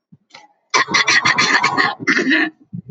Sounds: Throat clearing